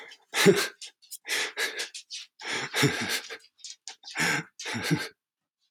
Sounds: Laughter